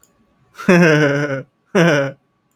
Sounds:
Laughter